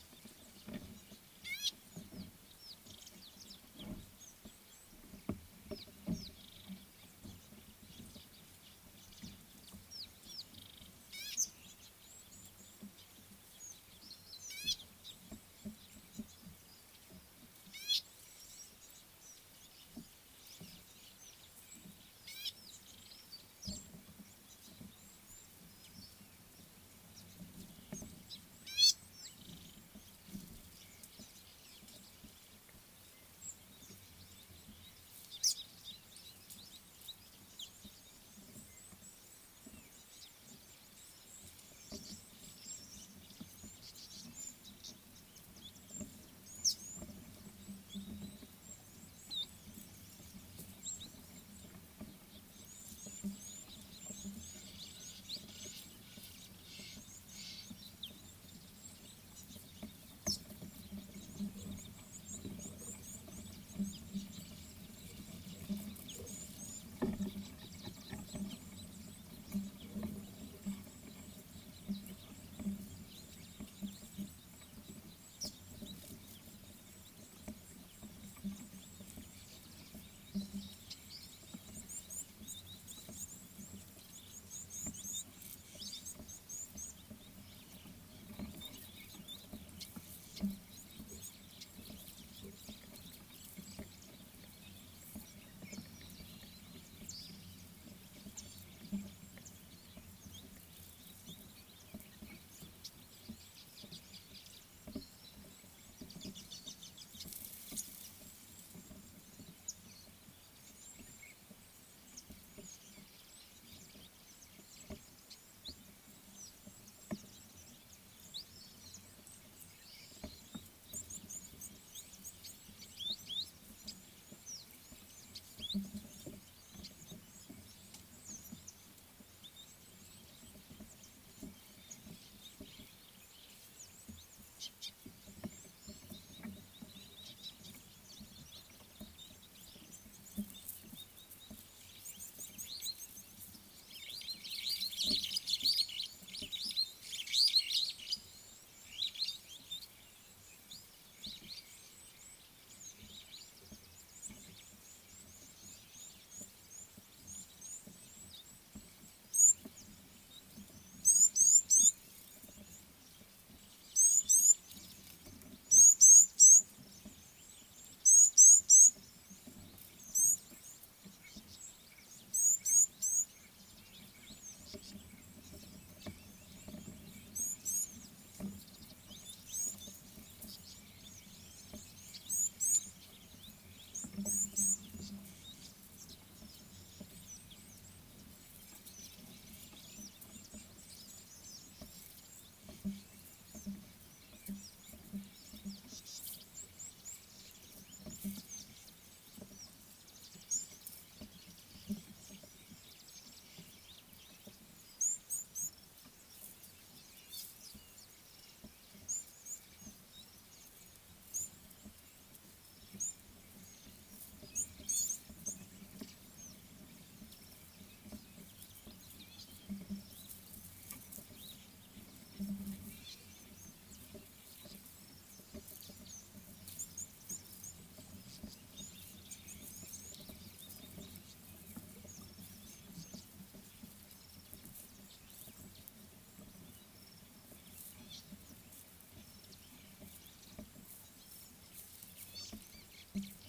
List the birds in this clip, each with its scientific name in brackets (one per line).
Superb Starling (Lamprotornis superbus)
Scarlet-chested Sunbird (Chalcomitra senegalensis)
Gray-backed Camaroptera (Camaroptera brevicaudata)
African Gray Flycatcher (Bradornis microrhynchus)
Tawny-flanked Prinia (Prinia subflava)
Red-billed Firefinch (Lagonosticta senegala)
Rattling Cisticola (Cisticola chiniana)
Red-cheeked Cordonbleu (Uraeginthus bengalus)